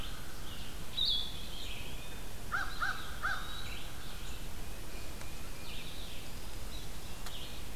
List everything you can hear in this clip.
Red-eyed Vireo, Blue-headed Vireo, Eastern Wood-Pewee, American Crow